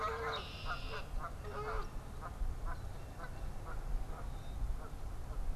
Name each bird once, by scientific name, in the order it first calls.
Agelaius phoeniceus, Cyanocitta cristata, Branta canadensis